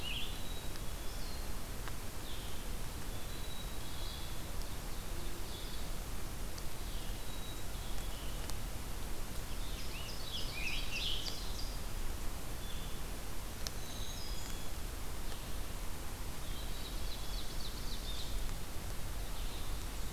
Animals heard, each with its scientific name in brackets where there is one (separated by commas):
Ovenbird (Seiurus aurocapilla), Black-capped Chickadee (Poecile atricapillus), Scarlet Tanager (Piranga olivacea), Blue Jay (Cyanocitta cristata), Black-throated Green Warbler (Setophaga virens), Blue-headed Vireo (Vireo solitarius)